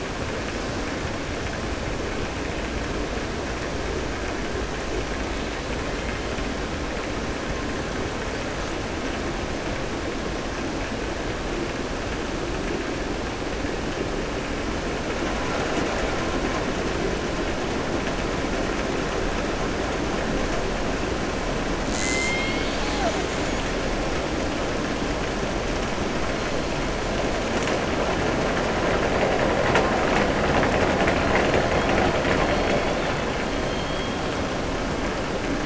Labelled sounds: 30.8	31.6	killer whale, southern resident, 0.68 to 4.2 kHz
32.1	33.0	killer whale, southern resident, 1.1 to 4.4 kHz
33.6	34.1	killer whale, southern resident, 3.2 to 4.3 kHz

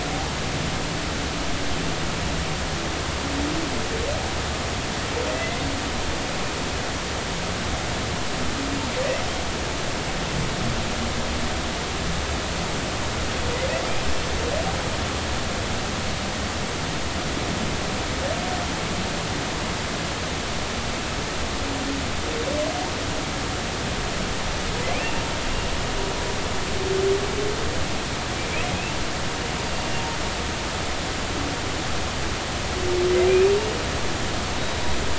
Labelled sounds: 5.3	5.6	humpback whale, 1.9 to 2.1 kHz
34.5	34.8	humpback whale, 3.8 to 3.9 kHz

